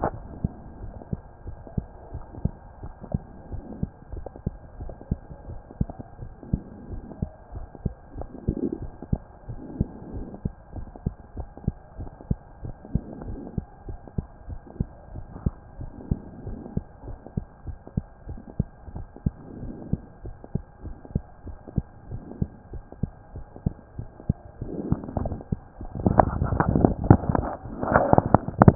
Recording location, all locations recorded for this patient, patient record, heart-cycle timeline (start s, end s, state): mitral valve (MV)
aortic valve (AV)+pulmonary valve (PV)+tricuspid valve (TV)+mitral valve (MV)
#Age: Child
#Sex: Male
#Height: 114.0 cm
#Weight: 19.3 kg
#Pregnancy status: False
#Murmur: Absent
#Murmur locations: nan
#Most audible location: nan
#Systolic murmur timing: nan
#Systolic murmur shape: nan
#Systolic murmur grading: nan
#Systolic murmur pitch: nan
#Systolic murmur quality: nan
#Diastolic murmur timing: nan
#Diastolic murmur shape: nan
#Diastolic murmur grading: nan
#Diastolic murmur pitch: nan
#Diastolic murmur quality: nan
#Outcome: Abnormal
#Campaign: 2015 screening campaign
0.00	0.78	unannotated
0.78	0.94	S1
0.94	1.10	systole
1.10	1.22	S2
1.22	1.44	diastole
1.44	1.56	S1
1.56	1.74	systole
1.74	1.88	S2
1.88	2.12	diastole
2.12	2.24	S1
2.24	2.42	systole
2.42	2.56	S2
2.56	2.82	diastole
2.82	2.92	S1
2.92	3.10	systole
3.10	3.24	S2
3.24	3.50	diastole
3.50	3.64	S1
3.64	3.80	systole
3.80	3.92	S2
3.92	4.12	diastole
4.12	4.26	S1
4.26	4.46	systole
4.46	4.56	S2
4.56	4.78	diastole
4.78	4.90	S1
4.90	5.08	systole
5.08	5.22	S2
5.22	5.46	diastole
5.46	5.60	S1
5.60	5.80	systole
5.80	5.94	S2
5.94	6.20	diastole
6.20	6.30	S1
6.30	6.48	systole
6.48	6.64	S2
6.64	6.88	diastole
6.88	7.02	S1
7.02	7.20	systole
7.20	7.32	S2
7.32	7.52	diastole
7.52	7.66	S1
7.66	7.84	systole
7.84	7.96	S2
7.96	8.16	diastole
8.16	8.28	S1
8.28	8.46	systole
8.46	8.58	S2
8.58	8.80	diastole
8.80	8.92	S1
8.92	9.12	systole
9.12	9.26	S2
9.26	9.48	diastole
9.48	9.60	S1
9.60	9.78	systole
9.78	9.92	S2
9.92	10.14	diastole
10.14	10.28	S1
10.28	10.44	systole
10.44	10.54	S2
10.54	10.74	diastole
10.74	10.86	S1
10.86	11.02	systole
11.02	11.16	S2
11.16	11.35	diastole
11.35	11.48	S1
11.48	11.64	systole
11.64	11.76	S2
11.76	11.98	diastole
11.98	12.08	S1
12.08	12.26	systole
12.26	12.40	S2
12.40	12.62	diastole
12.62	12.74	S1
12.74	12.90	systole
12.90	13.02	S2
13.02	13.24	diastole
13.24	13.38	S1
13.38	13.54	systole
13.54	13.64	S2
13.64	13.86	diastole
13.86	13.98	S1
13.98	14.14	systole
14.14	14.28	S2
14.28	14.48	diastole
14.48	14.58	S1
14.58	14.76	systole
14.76	14.90	S2
14.90	15.12	diastole
15.12	15.26	S1
15.26	15.42	systole
15.42	15.56	S2
15.56	15.78	diastole
15.78	15.90	S1
15.90	16.10	systole
16.10	16.20	S2
16.20	16.42	diastole
16.42	16.56	S1
16.56	16.74	systole
16.74	16.86	S2
16.86	17.06	diastole
17.06	17.18	S1
17.18	17.35	systole
17.35	17.46	S2
17.46	17.65	diastole
17.65	17.78	S1
17.78	17.94	systole
17.94	18.06	S2
18.06	18.25	diastole
18.25	18.40	S1
18.40	18.56	systole
18.56	18.70	S2
18.70	18.92	diastole
18.92	19.06	S1
19.06	19.22	systole
19.22	19.36	S2
19.36	19.56	diastole
19.56	19.74	S1
19.74	19.88	systole
19.88	20.00	S2
20.00	20.22	diastole
20.22	20.34	S1
20.34	20.53	systole
20.53	20.64	S2
20.64	20.82	diastole
20.82	20.96	S1
20.96	21.13	systole
21.13	21.26	S2
21.26	21.43	diastole
21.43	21.56	S1
21.56	21.74	systole
21.74	21.88	S2
21.88	22.08	diastole
22.08	22.22	S1
22.22	22.39	systole
22.39	22.52	S2
22.52	22.70	diastole
22.70	22.82	S1
22.82	22.98	systole
22.98	23.10	S2
23.10	23.34	diastole
23.34	23.44	S1
23.44	23.62	systole
23.62	23.76	S2
23.76	28.75	unannotated